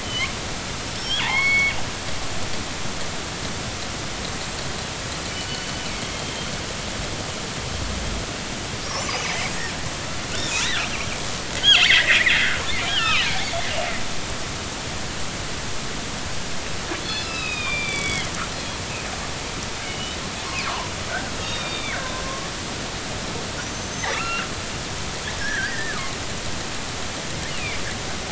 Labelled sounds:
0.0	0.3	killer whale, northern resident, G clan, 2.0 to 3.3 kHz
0.9	1.8	killer whale, northern resident, G clan, 0.80 to 5.6 kHz
5.5	6.5	killer whale, northern resident, G clan, 2.1 to 4.5 kHz
9.0	9.5	killer whale, northern resident, G clan, 1.8 to 6.1 kHz
10.6	10.9	killer whale, northern resident, G clan, 1.2 to 4.2 kHz
11.8	13.4	killer whale, northern resident, G clan, 1.1 to 4.3 kHz
17.0	18.3	killer whale, northern resident, G clan, 0.96 to 5.2 kHz
19.8	20.2	killer whale, northern resident, G clan, 2.8 to 3.1 kHz
20.7	20.9	killer whale, northern resident, G clan, 0.83 to 1.4 kHz
21.3	22.5	killer whale, northern resident, G clan, 1.0 to 6.7 kHz
23.7	24.5	killer whale, northern resident, G clan, 1.1 to 6.4 kHz
25.4	26.0	killer whale, northern resident, G clan, 1.5 to 2.0 kHz
27.5	27.8	killer whale, northern resident, G clan, 2.0 to 3.0 kHz

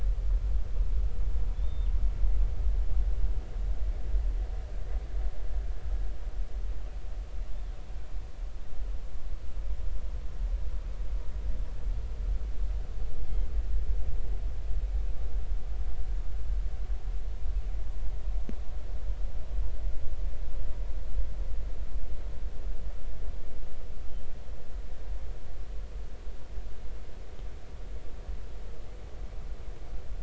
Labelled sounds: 1.5	1.9	killer whale, northern resident, 3.4 to 3.7 kHz

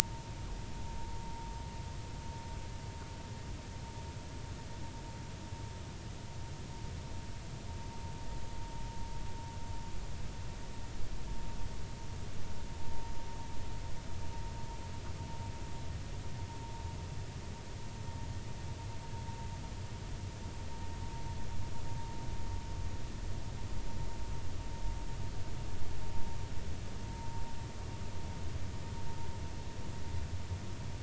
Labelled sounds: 27.2	27.4	vessel noise, 0.86 to 0.96 kHz

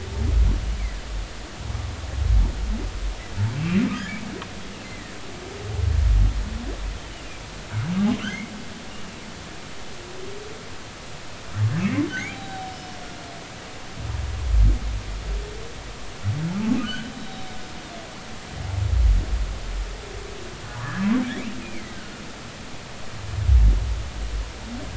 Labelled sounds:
4.8	5.2	humpback whale, 1.8 to 2.1 kHz
8.2	8.5	humpback whale, 5.9 to 6.5 kHz
11.8	13.0	humpback whale, 0.80 to 5.3 kHz
16.8	17.4	humpback whale, 1.4 to 4.0 kHz
20.7	22.0	humpback whale, 0.80 to 2.6 kHz

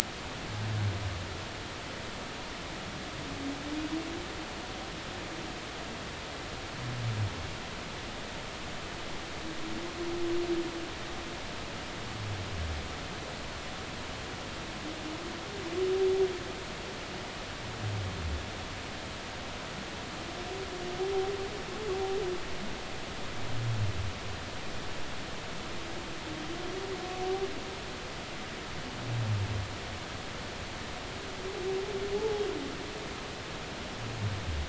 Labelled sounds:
32.1	32.4	humpback whale, 0.80 to 0.96 kHz

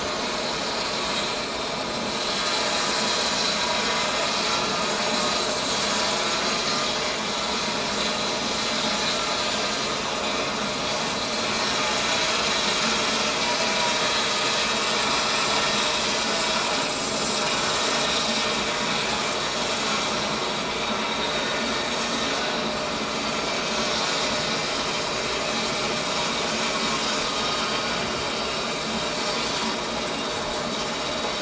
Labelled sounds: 1.0	1.3	vessel noise, 7.4 to 7.6 kHz
10.2	10.5	vessel noise, 2.5 to 2.6 kHz
21.2	21.5	vessel noise, 3.7 to 3.8 kHz
24.7	25.0	vessel noise, 3.0 to 3.2 kHz

